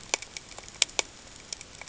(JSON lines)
{"label": "ambient", "recorder": "HydroMoth"}